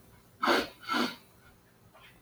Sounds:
Sniff